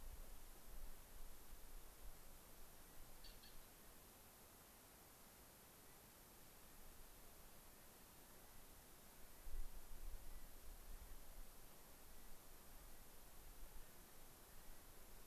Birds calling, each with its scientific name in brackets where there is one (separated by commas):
Clark's Nutcracker (Nucifraga columbiana)